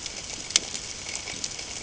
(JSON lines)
{"label": "ambient", "recorder": "HydroMoth"}